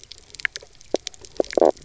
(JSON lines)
{"label": "biophony, knock croak", "recorder": "SoundTrap 300"}